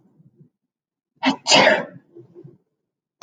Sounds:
Sneeze